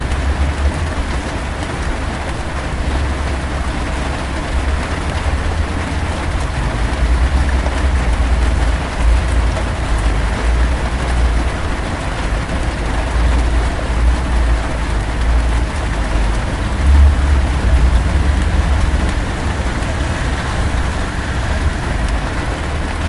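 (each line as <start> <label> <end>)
0.0 Heavy rain pounds against the truck cab with a loud, steady drumming rhythm. 23.1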